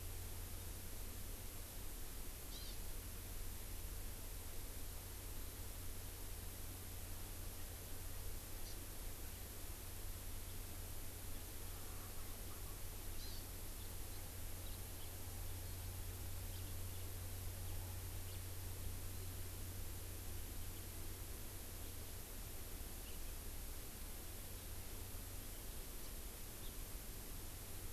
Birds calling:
House Finch (Haemorhous mexicanus), Hawaii Amakihi (Chlorodrepanis virens)

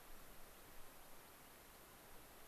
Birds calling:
American Pipit (Anthus rubescens)

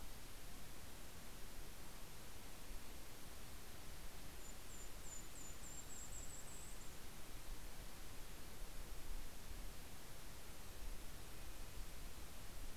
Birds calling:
Red-breasted Nuthatch (Sitta canadensis), Yellow-rumped Warbler (Setophaga coronata)

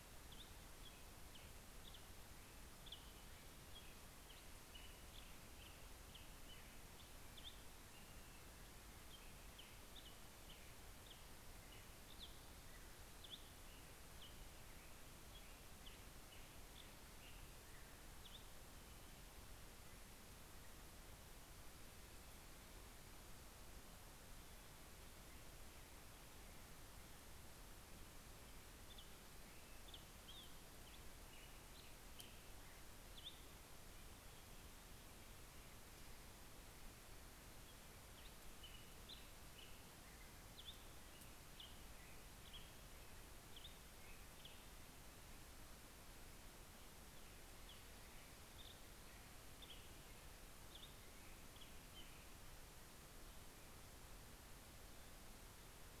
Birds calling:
Black-headed Grosbeak (Pheucticus melanocephalus)

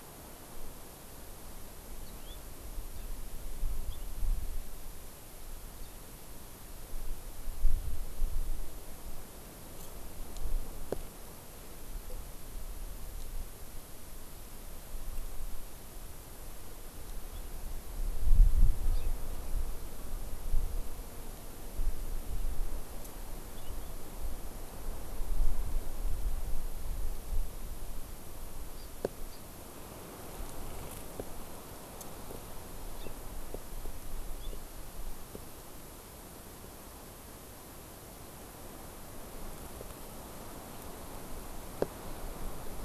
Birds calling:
Hawaii Amakihi (Chlorodrepanis virens), House Finch (Haemorhous mexicanus)

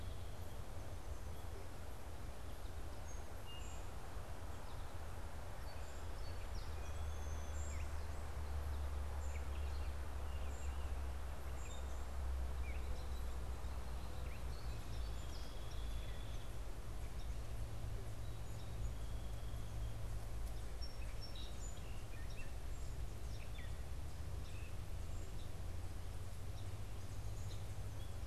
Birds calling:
unidentified bird, Song Sparrow (Melospiza melodia), Gray Catbird (Dumetella carolinensis)

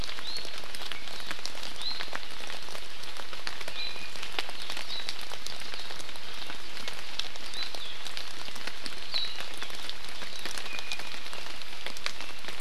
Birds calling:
Iiwi (Drepanis coccinea)

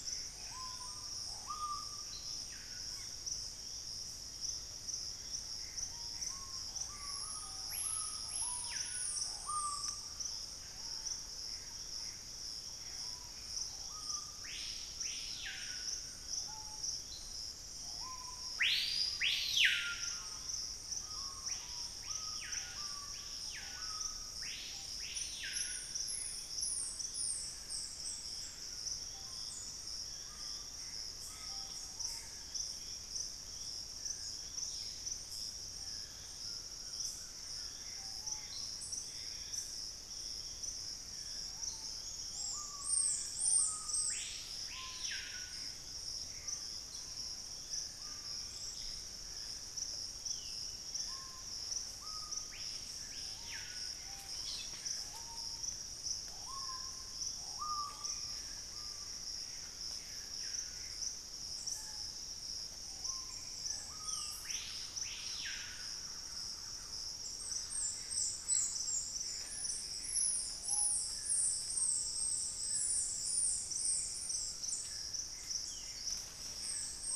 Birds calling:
Ringed Antpipit (Corythopis torquatus), Dusky-throated Antshrike (Thamnomanes ardesiacus), White-throated Toucan (Ramphastos tucanus), unidentified bird, Screaming Piha (Lipaugus vociferans), Thrush-like Wren (Campylorhynchus turdinus), Gray Antbird (Cercomacra cinerascens), Squirrel Cuckoo (Piaya cayana), Black-faced Antthrush (Formicarius analis)

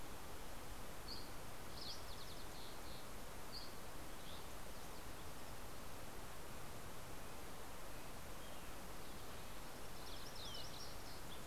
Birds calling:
Dusky Flycatcher (Empidonax oberholseri), Red-breasted Nuthatch (Sitta canadensis), MacGillivray's Warbler (Geothlypis tolmiei), Fox Sparrow (Passerella iliaca)

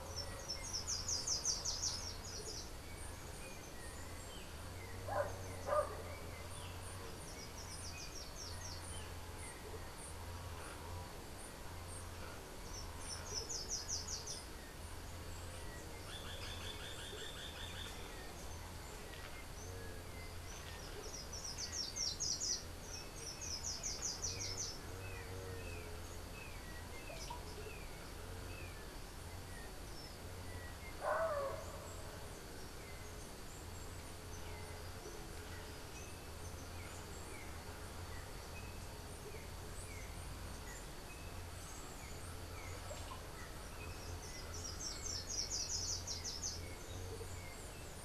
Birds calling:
Yellow-backed Oriole (Icterus chrysater), Andean Motmot (Momotus aequatorialis), Russet-backed Oropendola (Psarocolius angustifrons), unidentified bird, Slate-throated Redstart (Myioborus miniatus)

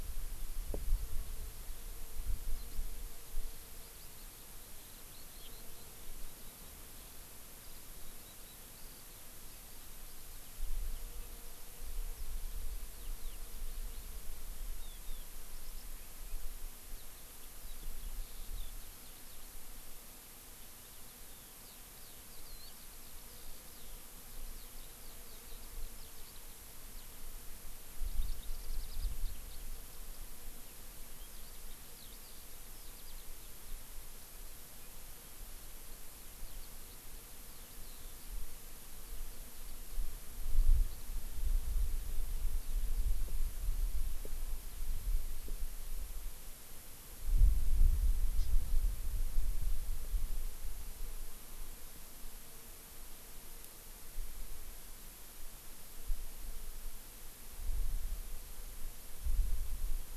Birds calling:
Eurasian Skylark (Alauda arvensis), Hawaii Amakihi (Chlorodrepanis virens)

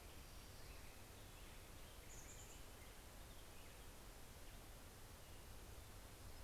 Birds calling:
Black-headed Grosbeak (Pheucticus melanocephalus), Chestnut-backed Chickadee (Poecile rufescens)

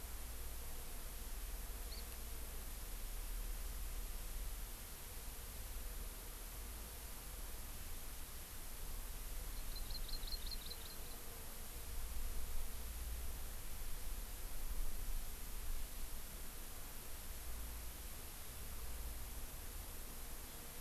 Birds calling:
Hawaii Amakihi (Chlorodrepanis virens)

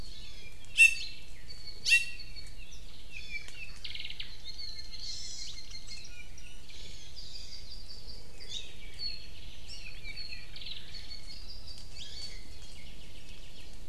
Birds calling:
Iiwi (Drepanis coccinea), Hawaii Creeper (Loxops mana), Hawaii Amakihi (Chlorodrepanis virens), Apapane (Himatione sanguinea)

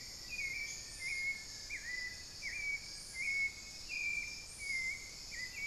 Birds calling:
Elegant Woodcreeper (Xiphorhynchus elegans), Hauxwell's Thrush (Turdus hauxwelli), unidentified bird

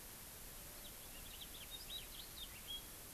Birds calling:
House Finch (Haemorhous mexicanus)

